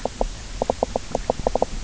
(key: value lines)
label: biophony, knock croak
recorder: SoundTrap 300